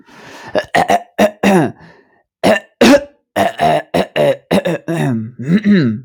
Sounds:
Throat clearing